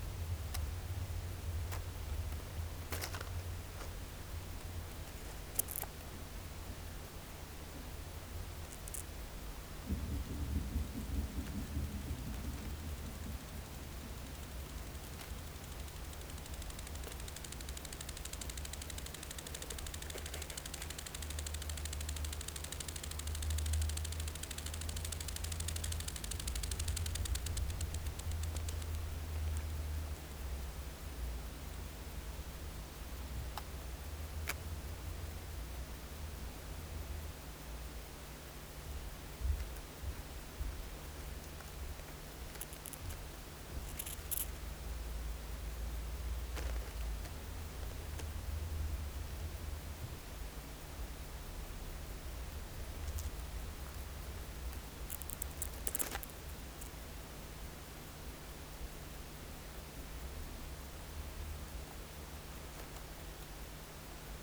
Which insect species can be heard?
Chorthippus acroleucus